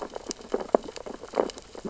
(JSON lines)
{"label": "biophony, sea urchins (Echinidae)", "recorder": "SoundTrap 600 or HydroMoth"}